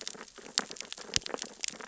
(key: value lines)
label: biophony, sea urchins (Echinidae)
recorder: SoundTrap 600 or HydroMoth